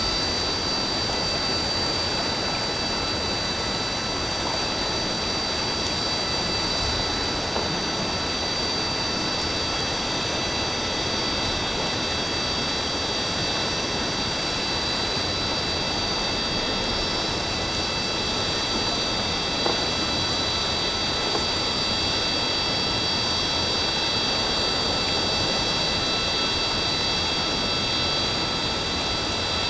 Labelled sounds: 16.9	17.2	vessel noise, 5.2 to 5.4 kHz

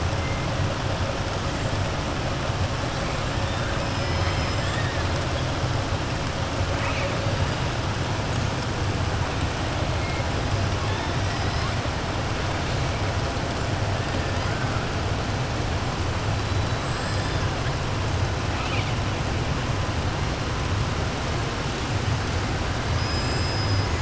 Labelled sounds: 3.9	5.0	killer whale, southern resident, 1.1 to 5.2 kHz
18.5	18.9	killer whale, southern resident, 1.4 to 4.4 kHz
22.9	23.9	killer whale, southern resident, 4.7 to 7.0 kHz

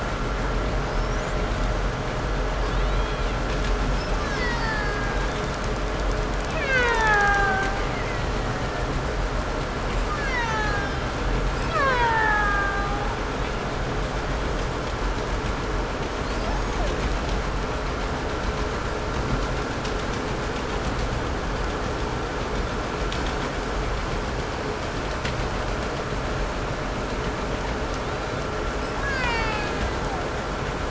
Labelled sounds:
0.7	1.6	killer whale, 4.8 to 7.8 kHz
2.5	3.5	killer whale, Bigg's (transient), 0.83 to 6.6 kHz
3.8	5.4	killer whale, Bigg's (transient), call T08, 0.63 to 8.0 kHz
5.2	5.7	killer whale, Bigg's (transient), 2.9 to 3.8 kHz
6.4	8.0	killer whale, Bigg's (transient), 0.36 to 8.0 kHz
7.9	9.1	killer whale, 1.5 to 2.3 kHz
9.8	13.2	killer whale, Bigg's (transient), 0.45 to 8.0 kHz
16.1	17.3	killer whale, 0.28 to 7.0 kHz
27.9	30.5	killer whale, Bigg's (transient), 0.57 to 8.0 kHz

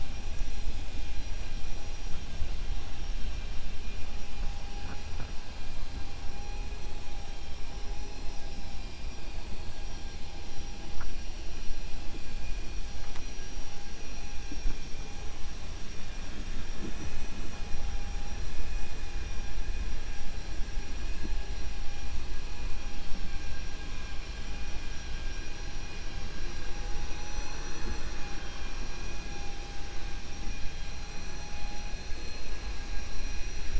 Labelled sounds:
1.7	2.2	vessel noise, 4.9 to 6.6 kHz
6.3	7.1	vessel noise, 5.7 to 6.6 kHz
7.7	9.1	vessel noise, 3.8 to 6.6 kHz

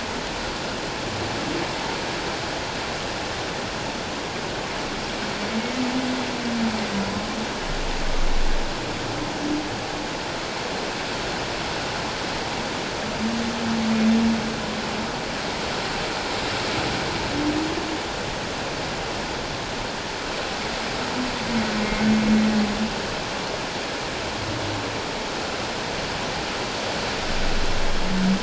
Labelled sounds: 21.8	22.1	humpback whale, 2.0 to 2.2 kHz

